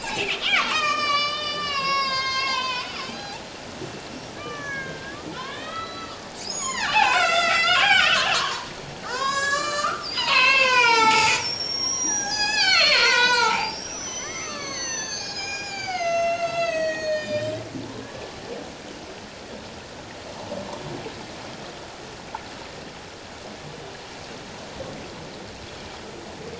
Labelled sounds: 0.0	3.4	killer whale, Bigg's (transient), 0.78 to 8.0 kHz
4.4	8.8	killer whale, Bigg's (transient), 0.78 to 7.7 kHz
9.0	18.3	killer whale, Bigg's (transient), 0.78 to 7.9 kHz

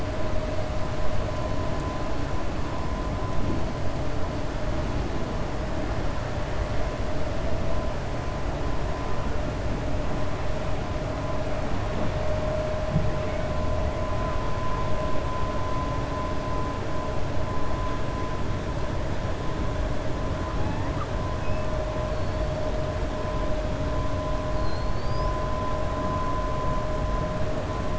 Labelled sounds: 24.5	25.3	killer whale, 4.1 to 5.7 kHz

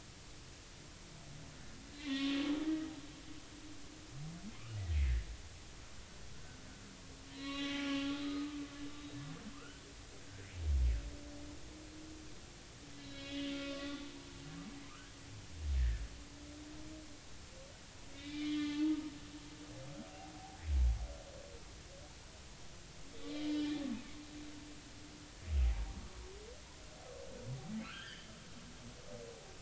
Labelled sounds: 2.0	2.4	humpback whale, 1.0 to 3.6 kHz
6.3	6.6	humpback whale, 1.4 to 1.6 kHz
7.3	8.6	humpback whale, 1.0 to 4.0 kHz
9.5	9.9	humpback whale, 1.2 to 1.6 kHz
12.9	13.9	humpback whale, 1.1 to 4.3 kHz
14.1	14.4	humpback whale, 0.86 to 0.99 kHz
15.8	16.0	humpback whale, 1.6 to 1.9 kHz
18.1	18.8	humpback whale, 1.1 to 3.9 kHz
23.3	23.7	humpback whale, 2.0 to 3.3 kHz
25.7	26.0	humpback whale, 0.90 to 0.99 kHz
27.8	28.3	humpback whale, 1.1 to 3.5 kHz

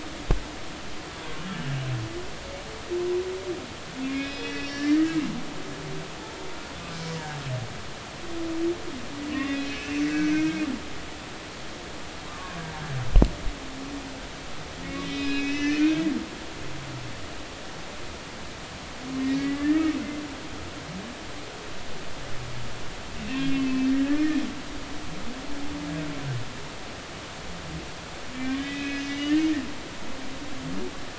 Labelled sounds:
4.0	5.2	humpback whale, 1.5 to 5.5 kHz
9.3	10.6	humpback whale, 1.5 to 2.8 kHz
12.3	12.6	humpback whale, 0.99 to 1.2 kHz
15.0	16.0	humpback whale, 1.7 to 6.2 kHz
19.4	20.0	humpback whale, 1.2 to 2.1 kHz
23.2	24.4	humpback whale, 1.6 to 2.8 kHz
28.3	29.4	humpback whale, 1.6 to 3.7 kHz

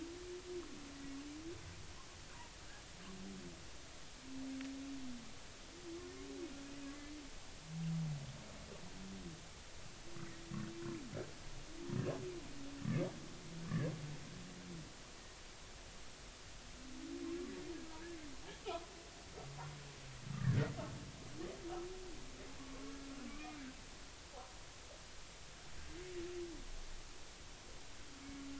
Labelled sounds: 18.6	18.9	humpback whale, 0.80 to 1.1 kHz
22.6	23.6	humpback whale, 0.96 to 2.5 kHz

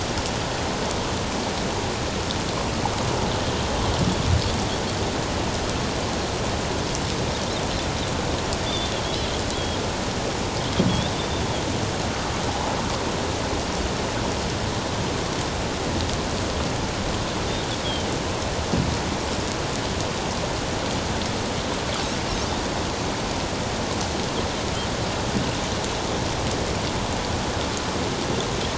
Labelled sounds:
8.6	8.9	Pacific white-sided dolphin, 3.4 to 3.7 kHz
9.5	9.8	Pacific white-sided dolphin, 3.2 to 3.4 kHz
10.9	11.1	Pacific white-sided dolphin, 3.2 to 3.8 kHz

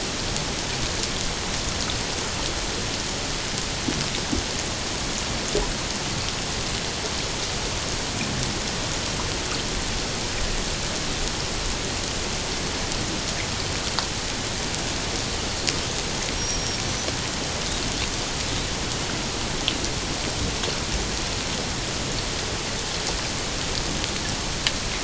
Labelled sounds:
16.4	16.8	killer whale, Bigg's (transient), 5.5 to 5.7 kHz

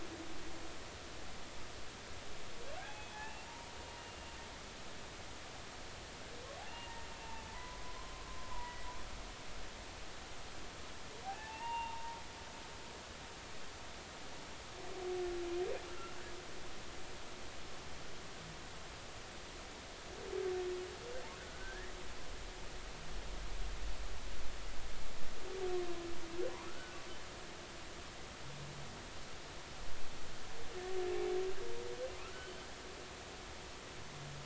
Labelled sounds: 2.8	3.5	humpback whale, 0.80 to 3.5 kHz
4.0	4.4	humpback whale, 2.7 to 2.8 kHz
6.7	7.1	humpback whale, 0.86 to 2.9 kHz
7.5	8.9	humpback whale, 0.86 to 2.0 kHz
11.2	12.2	humpback whale, 0.80 to 3.7 kHz
15.9	16.2	humpback whale, 1.3 to 1.5 kHz
21.4	22.0	humpback whale, 1.4 to 2.0 kHz
26.7	27.0	humpback whale, 1.2 to 1.6 kHz
32.3	32.6	humpback whale, 2.9 to 3.1 kHz

